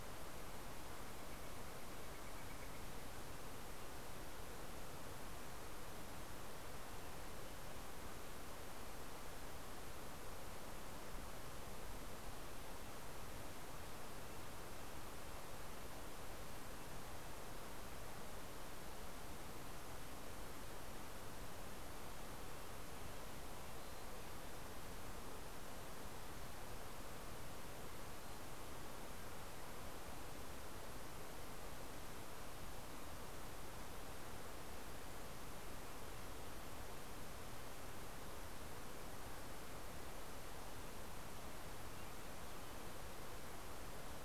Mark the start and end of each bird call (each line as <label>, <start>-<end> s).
Northern Flicker (Colaptes auratus), 0.0-3.1 s
Red-breasted Nuthatch (Sitta canadensis), 12.1-17.6 s
Mountain Chickadee (Poecile gambeli), 23.4-25.1 s
Mountain Chickadee (Poecile gambeli), 27.7-28.9 s